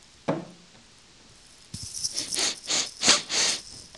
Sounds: Sniff